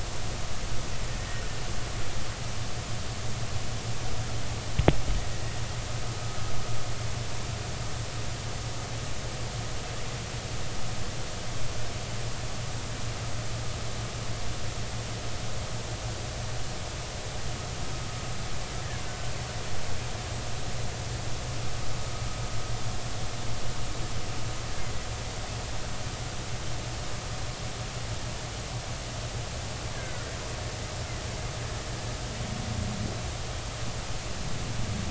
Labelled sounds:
19.0	19.3	killer whale, Bigg's (transient), 1.47 to 1.54 kHz
29.9	30.2	killer whale, Bigg's (transient), 1.3 to 1.8 kHz

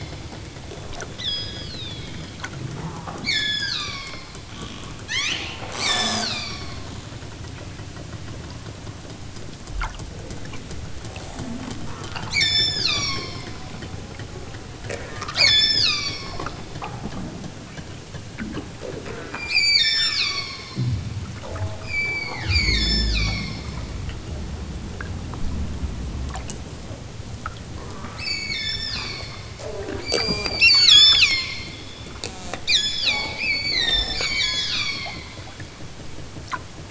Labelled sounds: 1.1	2.3	killer whale, southern Alaska resident, 1.7 to 8.0 kHz
3.2	4.3	killer whale, southern Alaska resident, 0.78 to 8.0 kHz
5.1	6.7	killer whale, southern Alaska resident, 0.41 to 8.0 kHz
12.3	13.5	killer whale, southern Alaska resident, 0.64 to 8.0 kHz
15.2	16.4	killer whale, southern Alaska resident, 0.83 to 8.0 kHz
19.5	20.7	killer whale, southern Alaska resident, 0.83 to 8.0 kHz
21.8	23.7	killer whale, southern Alaska resident, 0.78 to 8.0 kHz
28.2	29.3	killer whale, southern Alaska resident, 1.4 to 8.0 kHz
30.0	31.6	killer whale, southern Alaska resident, 0.64 to 8.0 kHz
32.7	35.2	killer whale, southern Alaska resident, 0.32 to 8.0 kHz

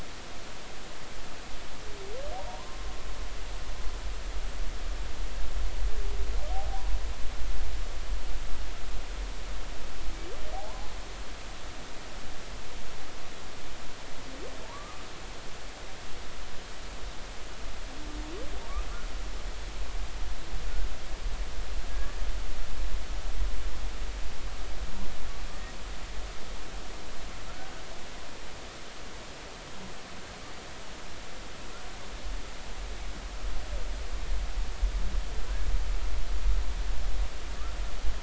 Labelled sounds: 2.4	2.8	humpback whale, 0.90 to 1.1 kHz
6.5	6.9	humpback whale, 0.80 to 0.90 kHz
10.5	10.8	humpback whale, 0.80 to 1.1 kHz
14.6	15.0	humpback whale, 0.83 to 1.3 kHz

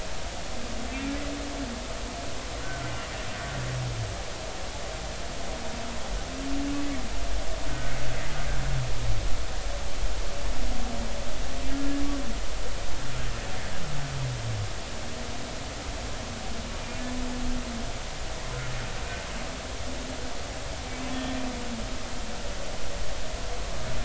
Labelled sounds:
2.6	2.9	humpback whale, 1.3 to 1.6 kHz
7.7	8.0	humpback whale, 1.4 to 1.6 kHz

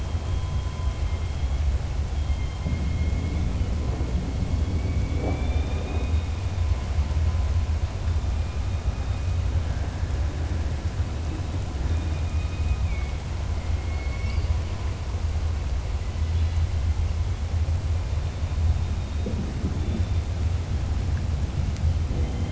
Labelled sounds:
11.8	13.1	killer whale, southern resident, 2.2 to 3.3 kHz

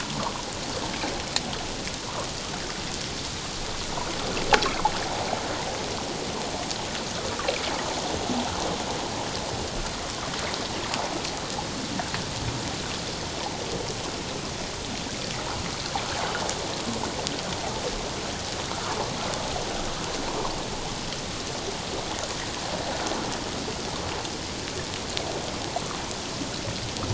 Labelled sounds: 18.7	19.0	water noise, 1.1 to 1.5 kHz

